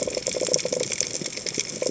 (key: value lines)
label: biophony
recorder: HydroMoth